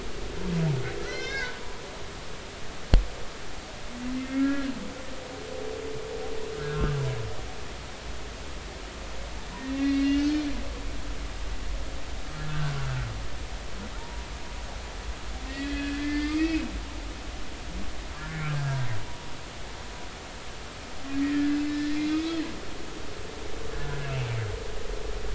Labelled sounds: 1.0	1.5	humpback whale, 1.3 to 6.0 kHz
4.2	4.7	humpback whale, 1.3 to 2.2 kHz
6.6	7.0	humpback whale, 1.2 to 1.7 kHz
9.6	10.3	humpback whale, 1.8 to 2.9 kHz
12.5	13.1	humpback whale, 1.3 to 1.6 kHz
14.0	14.3	humpback whale, 0.86 to 0.99 kHz
15.5	16.6	humpback whale, 1.6 to 3.4 kHz
18.2	18.8	humpback whale, 1.3 to 1.8 kHz
21.2	22.4	humpback whale, 1.6 to 3.6 kHz
23.7	24.3	humpback whale, 1.5 to 2.8 kHz

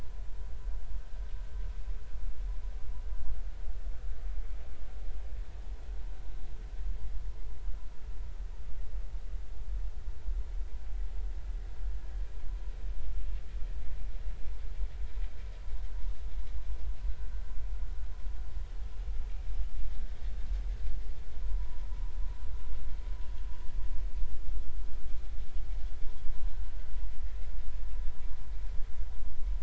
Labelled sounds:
21.4	21.8	vessel noise, 0.93 to 1.1 kHz

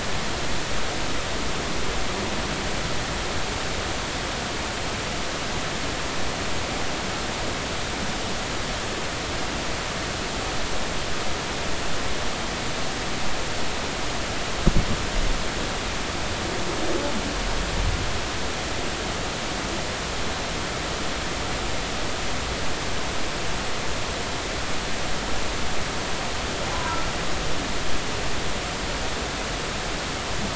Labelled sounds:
26.7	27.0	humpback whale, 0.90 to 1.1 kHz

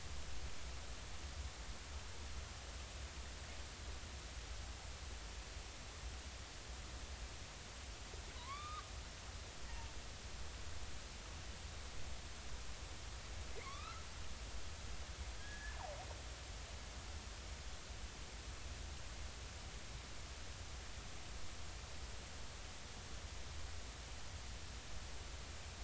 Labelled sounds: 8.3	8.9	killer whale, northern resident, 0.93 to 3.8 kHz
9.7	9.9	killer whale, northern resident, 0.86 to 0.99 kHz
13.5	14.0	killer whale, northern resident, 1.0 to 2.7 kHz
15.4	15.8	killer whale, northern resident, 1.6 to 1.8 kHz

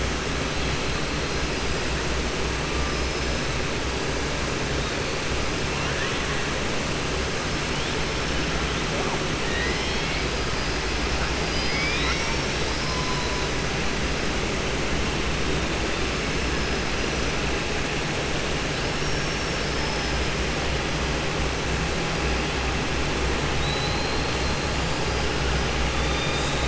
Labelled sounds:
9.4	10.2	killer whale, southern resident, 1.8 to 5.4 kHz
18.7	20.2	killer whale, southern resident, 4.5 to 6.0 kHz
23.5	24.6	killer whale, southern resident, 3.7 to 4.3 kHz
25.9	26.6	killer whale, southern resident, 3.5 to 4.9 kHz

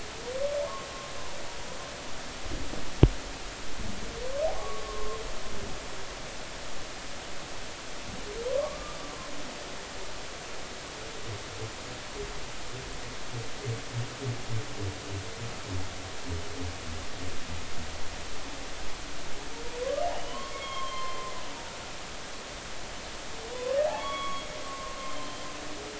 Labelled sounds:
4.6	5.2	humpback whale, 1.0 to 1.2 kHz
8.6	9.0	humpback whale, 1.0 to 1.3 kHz
20.1	21.2	humpback whale, 0.96 to 3.3 kHz
23.5	25.5	humpback whale, 0.80 to 3.4 kHz

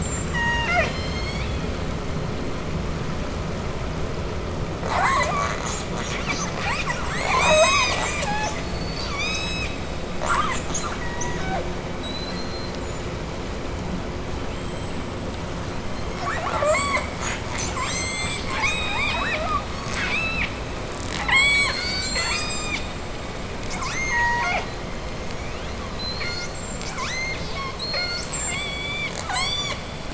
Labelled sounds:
0.2	1.0	killer whale, southern resident, J pod, 0.25 to 8.0 kHz
0.7	1.9	killer whale, southern resident, J pod, call S01, 1.7 to 8.0 kHz
4.7	9.8	killer whale, southern resident, J pod, 0.36 to 8.0 kHz
10.1	12.9	killer whale, southern resident, J pod, 0.36 to 8.0 kHz
14.3	15.2	killer whale, southern resident, J pod, 2.2 to 8.0 kHz
15.7	23.1	killer whale, southern resident, J pod, 0.43 to 8.0 kHz
23.6	29.9	killer whale, southern resident, J pod, 0.32 to 8.0 kHz

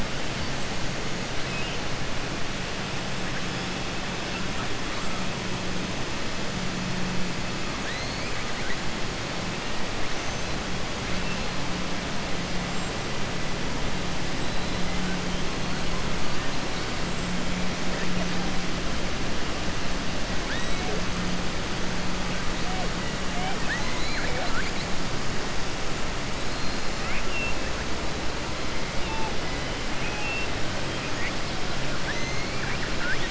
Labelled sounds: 1.4	1.8	killer whale, southern resident, 2.0 to 3.1 kHz
23.3	24.7	killer whale, southern resident, 0.51 to 4.5 kHz
26.9	27.6	killer whale, southern resident, 1.3 to 3.0 kHz
29.9	30.5	killer whale, southern resident, 2.2 to 3.4 kHz
31.9	33.3	killer whale, southern resident, 1.4 to 3.8 kHz

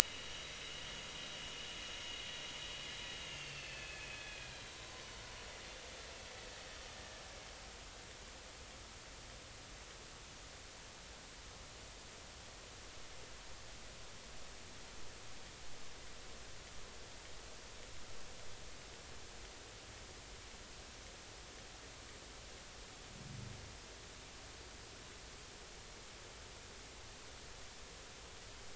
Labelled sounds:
0.0	1.5	vessel noise, 2.8 to 3.9 kHz
3.2	4.8	vessel noise, 2.5 to 6.7 kHz

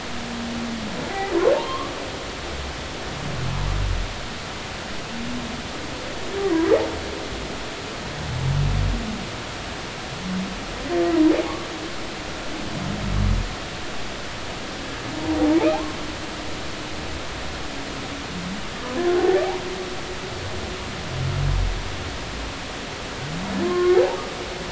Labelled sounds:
1.5	1.9	humpback whale, 0.86 to 1.2 kHz
15.5	16.0	humpback whale, 0.80 to 2.6 kHz
23.6	24.0	humpback whale, 1.0 to 1.2 kHz

